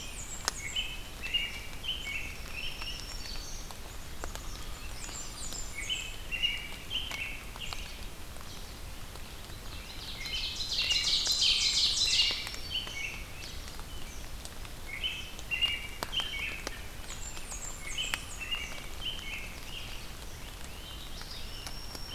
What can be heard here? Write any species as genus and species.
Setophaga fusca, Turdus migratorius, Setophaga virens, Setophaga magnolia, Vireo olivaceus, Seiurus aurocapilla, Myiarchus crinitus